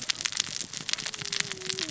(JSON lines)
{"label": "biophony, cascading saw", "recorder": "SoundTrap 600 or HydroMoth"}